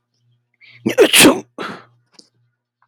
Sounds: Sneeze